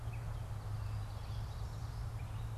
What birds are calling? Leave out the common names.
Geothlypis trichas